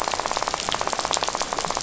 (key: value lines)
label: biophony, rattle
recorder: SoundTrap 500